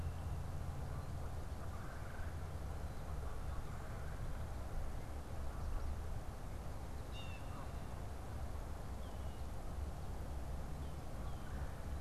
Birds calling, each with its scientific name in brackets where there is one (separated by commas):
Red-bellied Woodpecker (Melanerpes carolinus), Blue Jay (Cyanocitta cristata)